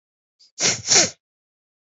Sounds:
Sniff